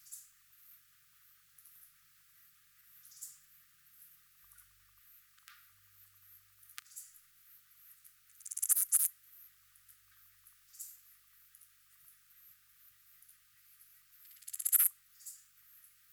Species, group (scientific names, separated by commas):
Albarracinia zapaterii, Orthoptera